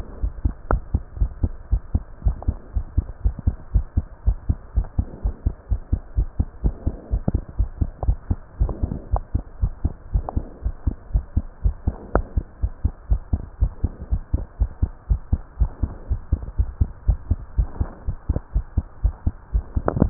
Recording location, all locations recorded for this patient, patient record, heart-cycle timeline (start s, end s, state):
tricuspid valve (TV)
aortic valve (AV)+pulmonary valve (PV)+tricuspid valve (TV)+mitral valve (MV)
#Age: Adolescent
#Sex: Female
#Height: 119.0 cm
#Weight: 19.6 kg
#Pregnancy status: False
#Murmur: Absent
#Murmur locations: nan
#Most audible location: nan
#Systolic murmur timing: nan
#Systolic murmur shape: nan
#Systolic murmur grading: nan
#Systolic murmur pitch: nan
#Systolic murmur quality: nan
#Diastolic murmur timing: nan
#Diastolic murmur shape: nan
#Diastolic murmur grading: nan
#Diastolic murmur pitch: nan
#Diastolic murmur quality: nan
#Outcome: Normal
#Campaign: 2015 screening campaign
0.00	0.20	diastole
0.20	0.34	S1
0.34	0.42	systole
0.42	0.56	S2
0.56	0.70	diastole
0.70	0.82	S1
0.82	0.90	systole
0.90	1.02	S2
1.02	1.18	diastole
1.18	1.32	S1
1.32	1.40	systole
1.40	1.54	S2
1.54	1.70	diastole
1.70	1.82	S1
1.82	1.90	systole
1.90	2.02	S2
2.02	2.24	diastole
2.24	2.36	S1
2.36	2.44	systole
2.44	2.58	S2
2.58	2.74	diastole
2.74	2.86	S1
2.86	2.94	systole
2.94	3.06	S2
3.06	3.22	diastole
3.22	3.36	S1
3.36	3.44	systole
3.44	3.58	S2
3.58	3.72	diastole
3.72	3.86	S1
3.86	3.94	systole
3.94	4.08	S2
4.08	4.24	diastole
4.24	4.38	S1
4.38	4.46	systole
4.46	4.60	S2
4.60	4.74	diastole
4.74	4.88	S1
4.88	4.96	systole
4.96	5.06	S2
5.06	5.22	diastole
5.22	5.34	S1
5.34	5.44	systole
5.44	5.54	S2
5.54	5.70	diastole
5.70	5.82	S1
5.82	5.90	systole
5.90	6.00	S2
6.00	6.16	diastole
6.16	6.28	S1
6.28	6.36	systole
6.36	6.46	S2
6.46	6.62	diastole
6.62	6.76	S1
6.76	6.84	systole
6.84	6.94	S2
6.94	7.10	diastole
7.10	7.22	S1
7.22	7.28	systole
7.28	7.42	S2
7.42	7.58	diastole
7.58	7.69	S1
7.69	7.78	systole
7.78	7.90	S2
7.90	8.04	diastole
8.04	8.18	S1
8.18	8.28	systole
8.28	8.38	S2
8.38	8.58	diastole
8.58	8.72	S1
8.72	8.80	systole
8.80	8.90	S2
8.90	9.10	diastole
9.10	9.24	S1
9.24	9.34	systole
9.34	9.44	S2
9.44	9.60	diastole
9.60	9.74	S1
9.74	9.82	systole
9.82	9.92	S2
9.92	10.12	diastole
10.12	10.26	S1
10.26	10.34	systole
10.34	10.44	S2
10.44	10.64	diastole
10.64	10.74	S1
10.74	10.86	systole
10.86	10.96	S2
10.96	11.12	diastole
11.12	11.24	S1
11.24	11.34	systole
11.34	11.48	S2
11.48	11.64	diastole
11.64	11.78	S1
11.78	11.85	systole
11.85	11.98	S2
11.98	12.14	diastole
12.14	12.26	S1
12.26	12.36	systole
12.36	12.46	S2
12.46	12.62	diastole
12.62	12.72	S1
12.72	12.84	systole
12.84	12.94	S2
12.94	13.10	diastole
13.10	13.24	S1
13.24	13.32	systole
13.32	13.42	S2
13.42	13.60	diastole
13.60	13.74	S1
13.74	13.82	systole
13.82	13.92	S2
13.92	14.10	diastole
14.10	14.24	S1
14.24	14.32	systole
14.32	14.46	S2
14.46	14.60	diastole
14.60	14.70	S1
14.70	14.78	systole
14.78	14.92	S2
14.92	15.10	diastole
15.10	15.20	S1
15.20	15.28	systole
15.28	15.42	S2
15.42	15.60	diastole
15.60	15.74	S1
15.74	15.82	systole
15.82	15.92	S2
15.92	16.10	diastole
16.10	16.20	S1
16.20	16.28	systole
16.28	16.42	S2
16.42	16.58	diastole
16.58	16.72	S1
16.72	16.80	systole
16.80	16.90	S2
16.90	17.04	diastole
17.04	17.18	S1
17.18	17.26	systole
17.26	17.40	S2
17.40	17.54	diastole
17.54	17.68	S1
17.68	17.76	systole
17.76	17.90	S2
17.90	18.06	diastole
18.06	18.16	S1
18.16	18.28	systole
18.28	18.40	S2
18.40	18.54	diastole
18.54	18.64	S1
18.64	18.76	systole
18.76	18.86	S2
18.86	19.00	diastole
19.00	19.14	S1
19.14	19.22	systole
19.22	19.36	S2
19.36	19.54	diastole